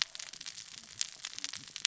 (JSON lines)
{"label": "biophony, cascading saw", "recorder": "SoundTrap 600 or HydroMoth"}